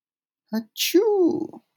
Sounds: Sneeze